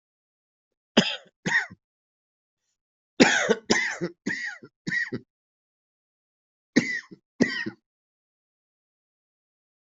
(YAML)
expert_labels:
- quality: good
  cough_type: unknown
  dyspnea: false
  wheezing: false
  stridor: false
  choking: false
  congestion: false
  nothing: true
  diagnosis: lower respiratory tract infection
  severity: mild
age: 58
gender: male
respiratory_condition: false
fever_muscle_pain: false
status: healthy